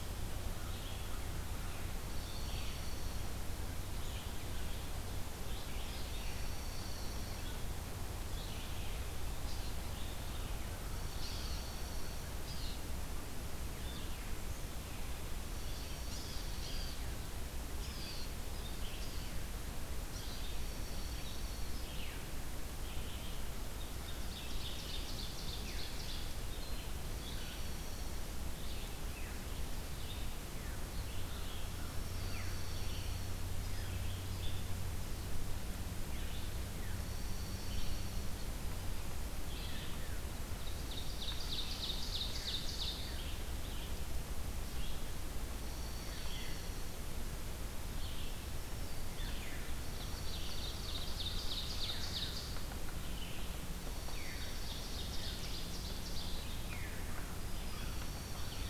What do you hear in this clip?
Red-eyed Vireo, Dark-eyed Junco, Blue Jay, Ovenbird